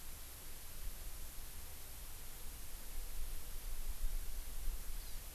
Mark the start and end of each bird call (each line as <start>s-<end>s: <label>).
4.9s-5.2s: Hawaii Amakihi (Chlorodrepanis virens)